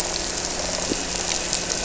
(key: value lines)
label: anthrophony, boat engine
recorder: SoundTrap 300

label: biophony
recorder: SoundTrap 300